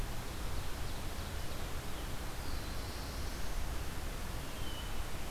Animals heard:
Black-throated Blue Warbler (Setophaga caerulescens), Ovenbird (Seiurus aurocapilla)

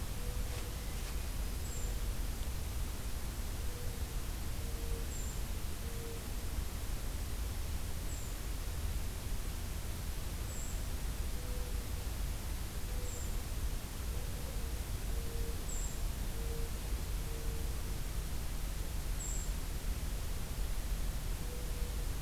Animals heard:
Brown Creeper (Certhia americana), Mourning Dove (Zenaida macroura)

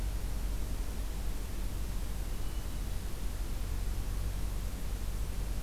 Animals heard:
Hermit Thrush (Catharus guttatus)

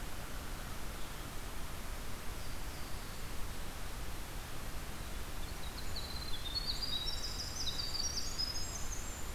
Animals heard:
Winter Wren (Troglodytes hiemalis)

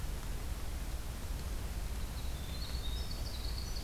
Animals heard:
Winter Wren (Troglodytes hiemalis)

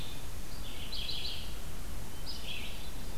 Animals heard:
Hermit Thrush (Catharus guttatus), Red-eyed Vireo (Vireo olivaceus)

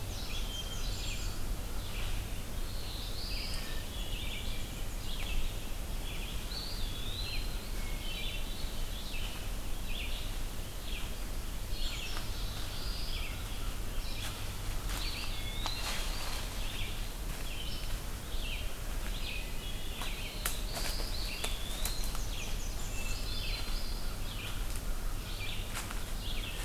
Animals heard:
Black-throated Blue Warbler (Setophaga caerulescens), Hermit Thrush (Catharus guttatus), Blackburnian Warbler (Setophaga fusca), Eastern Wood-Pewee (Contopus virens), Red-eyed Vireo (Vireo olivaceus), American Crow (Corvus brachyrhynchos), Black-and-white Warbler (Mniotilta varia)

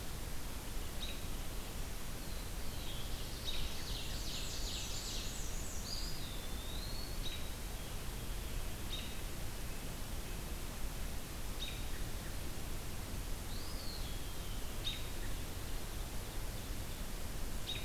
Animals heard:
American Robin (Turdus migratorius), Eastern Wood-Pewee (Contopus virens), Ovenbird (Seiurus aurocapilla), Black-throated Blue Warbler (Setophaga caerulescens), Black-and-white Warbler (Mniotilta varia)

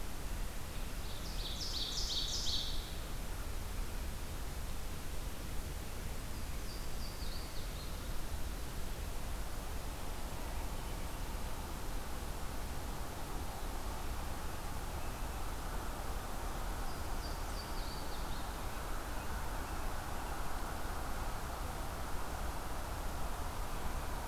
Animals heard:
Louisiana Waterthrush (Parkesia motacilla), Ovenbird (Seiurus aurocapilla)

